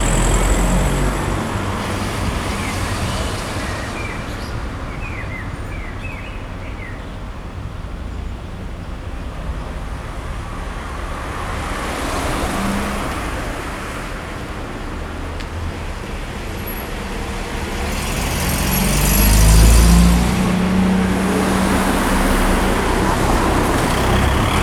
What is the dirty air spewed out the back end of these machines called?
exhaust